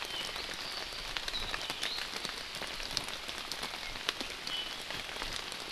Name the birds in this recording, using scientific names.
Himatione sanguinea